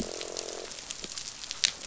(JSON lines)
{"label": "biophony, croak", "recorder": "SoundTrap 500"}